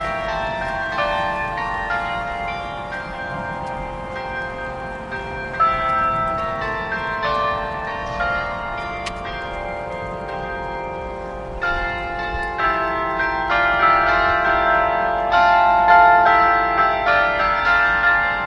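0.0s A bell rings in a harmonious melody. 18.5s

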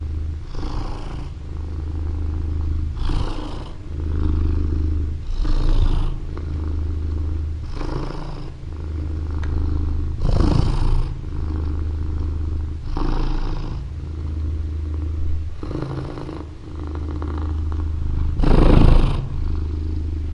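0.6s A cat is purring periodically. 20.3s
18.3s A cat is purring loudly. 19.2s

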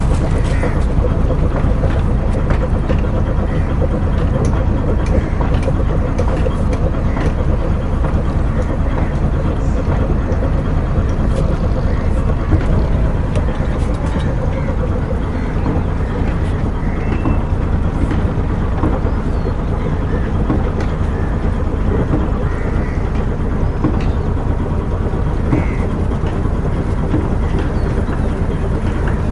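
0.0s An engine boat rumbles continuously with a low-pitched humming and vibration from a distance. 29.3s

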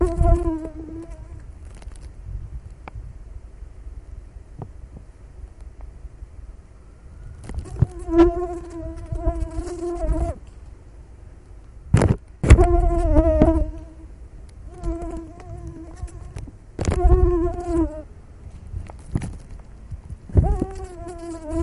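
0.0s A mosquito buzzes and the sound gradually fades out. 2.0s
1.7s A plastic bag crackles as it is tapped. 2.0s
2.8s A slight tap against a plastic bag. 3.0s
4.6s A plastic bag crackles quietly as it is tapped. 5.0s
7.4s A mosquito buzzes while flying. 10.4s
11.9s A plastic bag crackles as it is tapped. 12.2s
12.4s A mosquito buzzes loudly and then fades out while flying. 16.5s
16.8s A plastic bag is tapped. 17.0s
16.8s A mosquito buzzes loudly while flying. 18.0s
18.8s A plastic bag crackles as it is tapped. 19.3s
20.4s A mosquito buzzes loudly while flying. 21.6s

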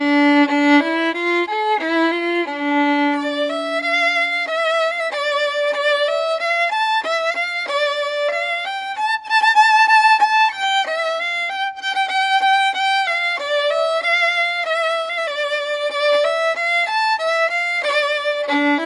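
0.0s A violin solo begins with deep notes and gradually rises to higher pitches. 18.9s

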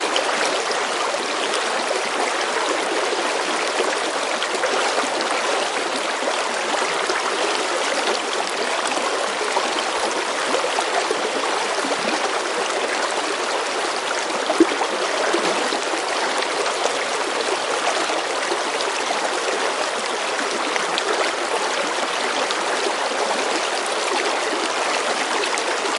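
0.0s Flowing stream water with babbling sounds. 26.0s

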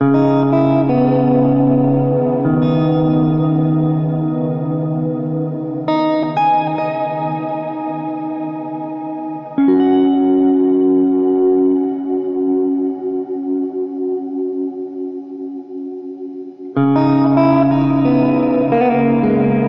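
0.0s An ambient guitar melody with reverb playing. 19.7s

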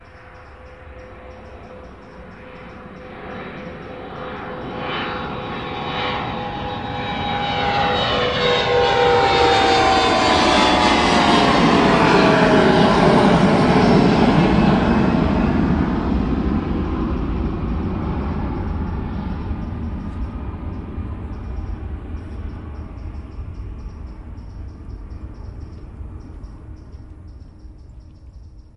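0.0s A prolonged, fading, echoing rumble following a plane passing. 6.6s
6.6s A loud, continuous roaring of an airplane flying overhead at low altitude with a gradually shifting pitch as it passes. 17.4s
17.4s A prolonged, fading, echoing rumble following a plane passing. 28.8s

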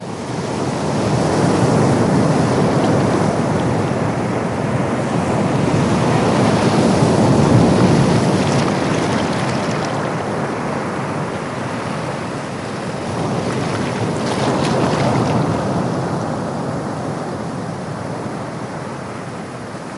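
0.0s The ocean roars with powerful waves. 20.0s
8.5s Waves lap softly against the shore. 11.0s
13.7s Waves lap softly against the water and rocks. 16.2s

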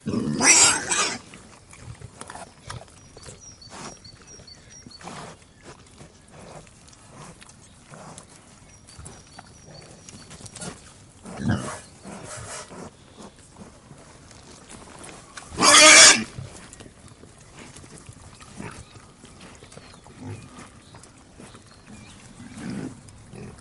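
0.0s A pig squeaks loudly nearby. 1.4s
1.6s A pig eats food, smacking loudly outside. 15.2s
2.9s A bird chirps quietly and repeatedly in the background. 23.6s
15.4s A pig squeaks very loudly outside. 16.4s
16.5s A pig eats food, smacking loudly outside. 23.6s

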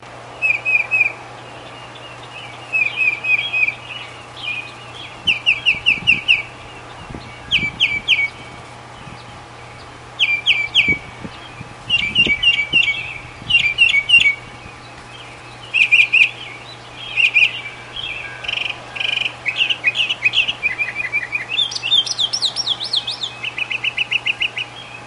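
0.0s Birds chirping repeatedly with short pauses between each chirp. 25.1s

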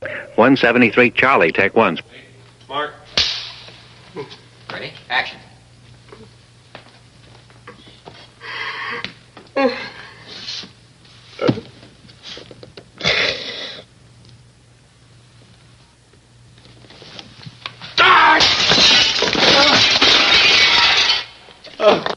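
0.0s A nearby synthetic sound descends in pitch. 0.4s
0.0s Low, continuous hiss from analogue equipment. 22.2s
0.4s A person speaks monotonously with slight distortion indoors. 2.1s
2.1s A person calling out in the distance. 2.3s
2.6s A person calls out nearby indoors. 3.1s
3.2s A loud, harsh clap from a nearby clapperboard indoors. 4.1s
4.1s A person whimpers nearby indoors. 4.5s
4.6s A person speaks monotonously with slight distortion indoors. 5.5s
6.0s A person producing a gentle whimper indoors. 6.4s
6.7s Multiple gentle footsteps on a floor indoors. 8.4s
8.4s A person inhales loudly. 9.1s
9.0s A heavy loud step is taken on the floor indoors. 9.1s
9.3s A person vocalizes a loud whimper indoors. 10.2s
10.2s A deep, gentle sliding sound. 10.8s
11.3s A person vocalizes a loud whimper indoors. 11.9s
11.4s A heavy, loud step is taken on the floor indoors. 11.9s
11.9s A nearby floor creaks repeatedly indoors. 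12.9s
13.0s A nearby person is wheezing loudly and harshly indoors. 14.0s
16.5s Muffled scratching sound nearby indoors. 17.9s
18.0s A person exclaims loudly and harshly indoors. 18.6s
18.6s Loud, sharp glass shattering nearby indoors. 21.4s
21.6s A person gasps loudly indoors. 22.2s

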